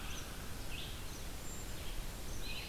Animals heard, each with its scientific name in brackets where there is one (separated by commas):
Cedar Waxwing (Bombycilla cedrorum), Red-eyed Vireo (Vireo olivaceus), Eastern Wood-Pewee (Contopus virens)